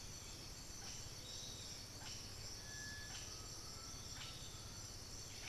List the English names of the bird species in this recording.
Blue-headed Parrot, Piratic Flycatcher, Undulated Tinamou